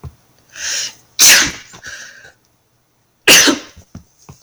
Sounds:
Sneeze